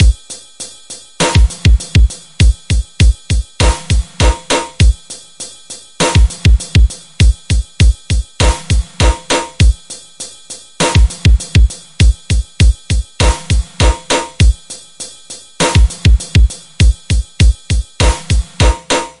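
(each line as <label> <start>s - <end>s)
Loud drums are played rhythmically. 0.0s - 19.2s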